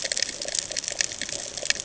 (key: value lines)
label: ambient
recorder: HydroMoth